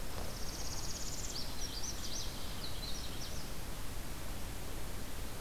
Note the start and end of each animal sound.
0.0s-1.5s: Northern Parula (Setophaga americana)
1.4s-3.5s: Magnolia Warbler (Setophaga magnolia)

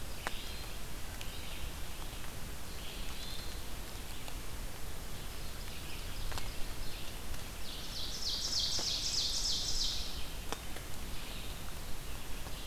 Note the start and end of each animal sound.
0.0s-12.7s: Red-eyed Vireo (Vireo olivaceus)
2.7s-3.8s: Hermit Thrush (Catharus guttatus)
5.0s-10.5s: Ovenbird (Seiurus aurocapilla)

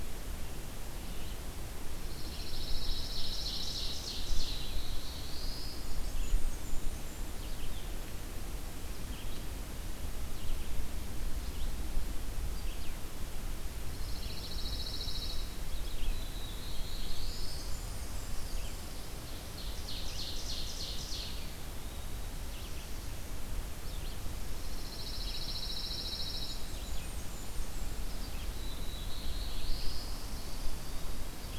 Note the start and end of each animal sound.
0.0s-9.4s: Red-eyed Vireo (Vireo olivaceus)
2.1s-3.9s: Pine Warbler (Setophaga pinus)
2.6s-4.7s: Ovenbird (Seiurus aurocapilla)
4.3s-6.1s: Black-throated Blue Warbler (Setophaga caerulescens)
5.6s-7.5s: Blackburnian Warbler (Setophaga fusca)
10.2s-31.6s: Red-eyed Vireo (Vireo olivaceus)
13.9s-15.6s: Pine Warbler (Setophaga pinus)
15.9s-17.7s: Black-throated Blue Warbler (Setophaga caerulescens)
16.7s-18.8s: Blackburnian Warbler (Setophaga fusca)
19.0s-21.4s: Ovenbird (Seiurus aurocapilla)
24.6s-26.7s: Pine Warbler (Setophaga pinus)
26.4s-28.0s: Blackburnian Warbler (Setophaga fusca)
28.4s-30.2s: Black-throated Blue Warbler (Setophaga caerulescens)

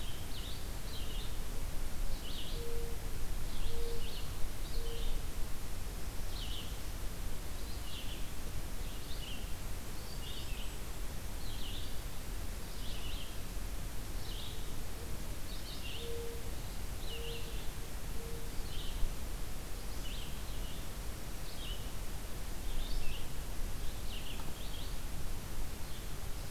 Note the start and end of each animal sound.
0.0s-25.1s: Red-eyed Vireo (Vireo olivaceus)
1.7s-5.4s: Mourning Dove (Zenaida macroura)
9.8s-10.9s: Golden-crowned Kinglet (Regulus satrapa)
14.7s-18.9s: Mourning Dove (Zenaida macroura)

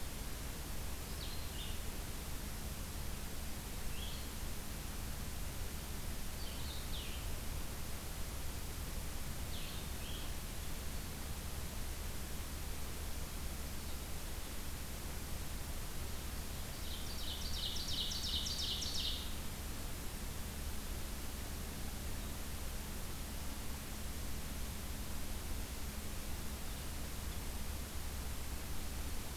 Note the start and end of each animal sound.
1.1s-10.3s: Blue-headed Vireo (Vireo solitarius)
16.8s-19.3s: Ovenbird (Seiurus aurocapilla)

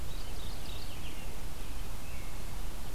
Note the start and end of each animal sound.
0.0s-1.3s: Mourning Warbler (Geothlypis philadelphia)

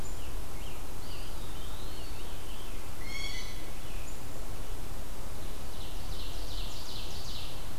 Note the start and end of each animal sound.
0.1s-2.9s: Scarlet Tanager (Piranga olivacea)
0.8s-2.5s: Eastern Wood-Pewee (Contopus virens)
2.9s-4.0s: Blue Jay (Cyanocitta cristata)
5.4s-7.7s: Ovenbird (Seiurus aurocapilla)

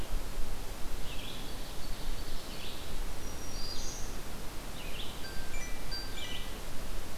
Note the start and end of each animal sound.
0.0s-5.2s: Red-eyed Vireo (Vireo olivaceus)
1.3s-2.8s: Ovenbird (Seiurus aurocapilla)
3.1s-4.2s: Black-throated Green Warbler (Setophaga virens)

